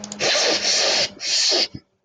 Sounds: Sniff